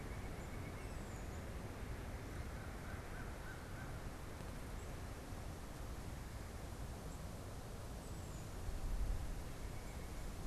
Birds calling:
White-breasted Nuthatch (Sitta carolinensis), American Crow (Corvus brachyrhynchos), Tufted Titmouse (Baeolophus bicolor)

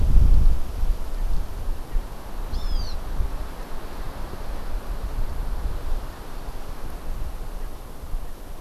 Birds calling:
Hawaiian Hawk (Buteo solitarius)

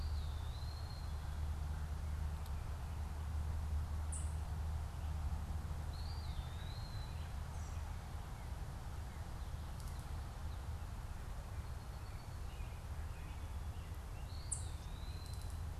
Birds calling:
Eastern Wood-Pewee (Contopus virens), Ovenbird (Seiurus aurocapilla), Song Sparrow (Melospiza melodia), American Robin (Turdus migratorius)

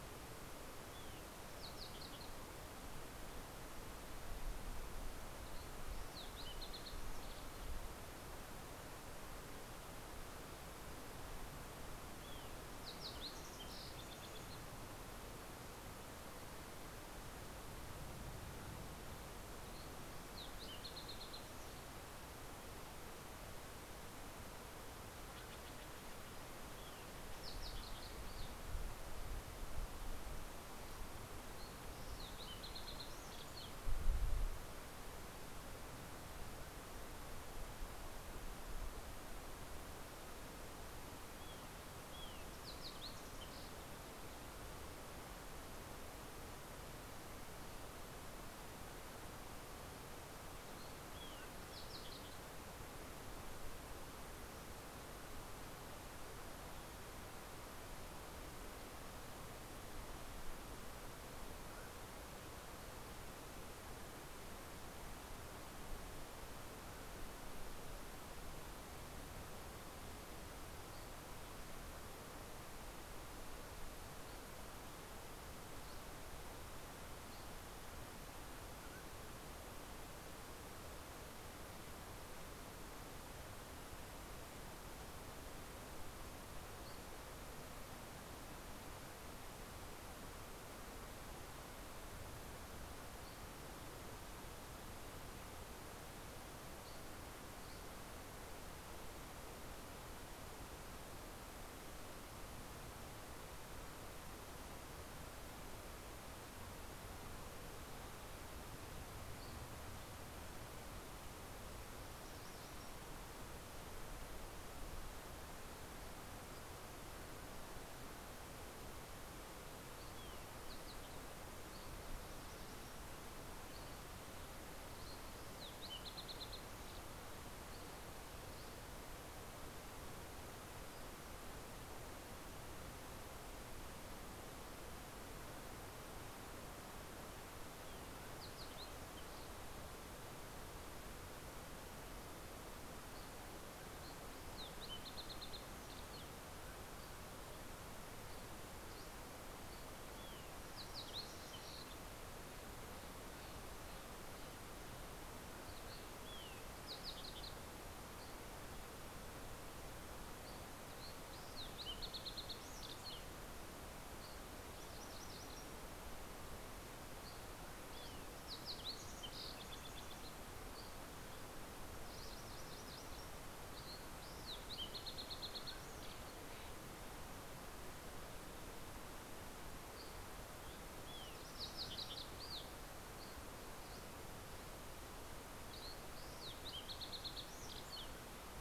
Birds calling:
Fox Sparrow (Passerella iliaca), MacGillivray's Warbler (Geothlypis tolmiei), Dusky Flycatcher (Empidonax oberholseri)

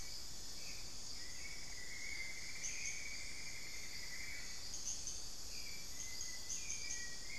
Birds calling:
unidentified bird, Cinnamon-throated Woodcreeper (Dendrexetastes rufigula), Hauxwell's Thrush (Turdus hauxwelli), Little Tinamou (Crypturellus soui)

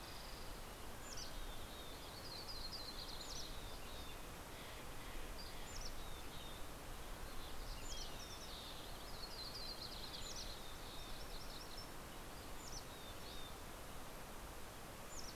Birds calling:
Dusky Flycatcher (Empidonax oberholseri), Steller's Jay (Cyanocitta stelleri), Red-breasted Nuthatch (Sitta canadensis), Mountain Chickadee (Poecile gambeli), Yellow-rumped Warbler (Setophaga coronata), Green-tailed Towhee (Pipilo chlorurus)

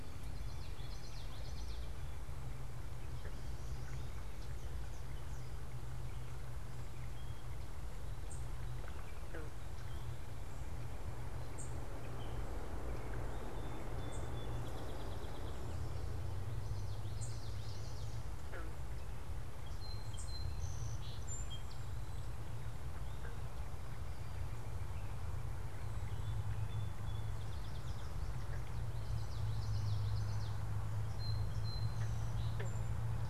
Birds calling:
Song Sparrow (Melospiza melodia), unidentified bird, Common Yellowthroat (Geothlypis trichas)

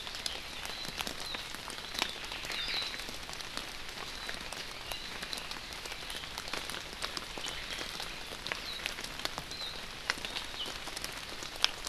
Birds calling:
Omao (Myadestes obscurus)

